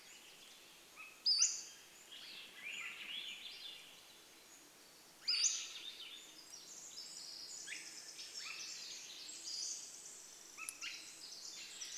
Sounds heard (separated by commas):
Pacific Wren song, Swainson's Thrush call, insect buzz, Swainson's Thrush song, Pacific-slope Flycatcher call